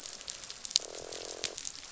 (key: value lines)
label: biophony, croak
recorder: SoundTrap 500